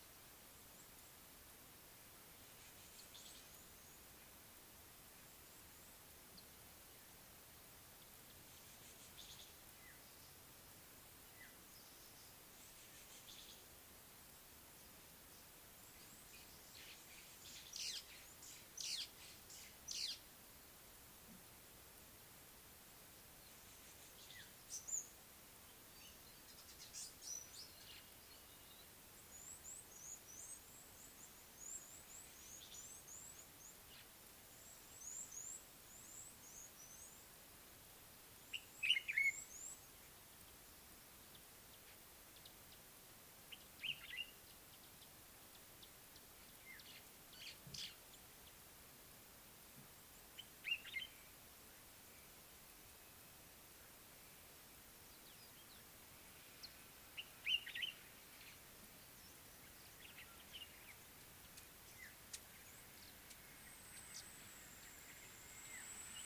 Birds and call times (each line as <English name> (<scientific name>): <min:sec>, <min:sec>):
White-browed Sparrow-Weaver (Plocepasser mahali): 0:18.8
African Gray Flycatcher (Bradornis microrhynchus): 0:24.8
Red-cheeked Cordonbleu (Uraeginthus bengalus): 0:31.6, 0:39.4
Common Bulbul (Pycnonotus barbatus): 0:39.0, 0:50.7